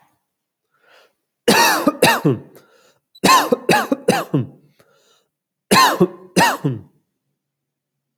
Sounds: Cough